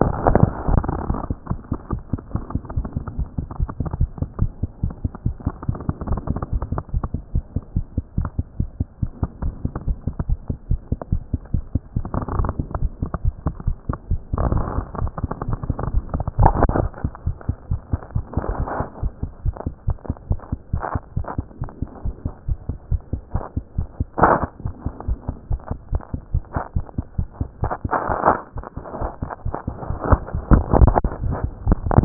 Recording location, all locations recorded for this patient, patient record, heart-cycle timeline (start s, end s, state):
pulmonary valve (PV)
aortic valve (AV)+pulmonary valve (PV)+tricuspid valve (TV)+mitral valve (MV)
#Age: Adolescent
#Sex: Female
#Height: 163.0 cm
#Weight: 45.8 kg
#Pregnancy status: False
#Murmur: Absent
#Murmur locations: nan
#Most audible location: nan
#Systolic murmur timing: nan
#Systolic murmur shape: nan
#Systolic murmur grading: nan
#Systolic murmur pitch: nan
#Systolic murmur quality: nan
#Diastolic murmur timing: nan
#Diastolic murmur shape: nan
#Diastolic murmur grading: nan
#Diastolic murmur pitch: nan
#Diastolic murmur quality: nan
#Outcome: Abnormal
#Campaign: 2014 screening campaign
0.00	1.50	unannotated
1.50	1.60	S1
1.60	1.72	systole
1.72	1.78	S2
1.78	1.92	diastole
1.92	2.02	S1
2.02	2.12	systole
2.12	2.20	S2
2.20	2.34	diastole
2.34	2.44	S1
2.44	2.54	systole
2.54	2.62	S2
2.62	2.76	diastole
2.76	2.86	S1
2.86	2.96	systole
2.96	3.04	S2
3.04	3.18	diastole
3.18	3.28	S1
3.28	3.38	systole
3.38	3.46	S2
3.46	3.60	diastole
3.60	3.70	S1
3.70	3.80	systole
3.80	3.88	S2
3.88	4.00	diastole
4.00	4.10	S1
4.10	4.20	systole
4.20	4.28	S2
4.28	4.40	diastole
4.40	4.50	S1
4.50	4.62	systole
4.62	4.70	S2
4.70	4.82	diastole
4.82	4.94	S1
4.94	5.02	systole
5.02	5.12	S2
5.12	5.26	diastole
5.26	5.34	S1
5.34	5.46	systole
5.46	5.54	S2
5.54	5.68	diastole
5.68	5.78	S1
5.78	5.88	systole
5.88	5.94	S2
5.94	6.08	diastole
6.08	6.20	S1
6.20	6.28	systole
6.28	6.40	S2
6.40	6.52	diastole
6.52	6.64	S1
6.64	6.72	systole
6.72	6.82	S2
6.82	6.94	diastole
6.94	7.04	S1
7.04	7.12	systole
7.12	7.22	S2
7.22	7.34	diastole
7.34	7.44	S1
7.44	7.54	systole
7.54	7.62	S2
7.62	7.76	diastole
7.76	7.86	S1
7.86	7.96	systole
7.96	8.04	S2
8.04	8.18	diastole
8.18	8.28	S1
8.28	8.38	systole
8.38	8.46	S2
8.46	8.60	diastole
8.60	8.68	S1
8.68	8.78	systole
8.78	8.88	S2
8.88	9.02	diastole
9.02	9.10	S1
9.10	9.22	systole
9.22	9.28	S2
9.28	9.42	diastole
9.42	9.54	S1
9.54	9.64	systole
9.64	9.72	S2
9.72	9.86	diastole
9.86	9.98	S1
9.98	10.06	systole
10.06	10.14	S2
10.14	10.28	diastole
10.28	10.38	S1
10.38	10.48	systole
10.48	10.56	S2
10.56	10.70	diastole
10.70	10.80	S1
10.80	10.90	systole
10.90	10.98	S2
10.98	11.12	diastole
11.12	11.22	S1
11.22	11.32	systole
11.32	11.40	S2
11.40	11.54	diastole
11.54	11.64	S1
11.64	11.74	systole
11.74	11.82	S2
11.82	11.96	diastole
11.96	32.05	unannotated